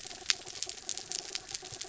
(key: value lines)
label: anthrophony, mechanical
recorder: SoundTrap 300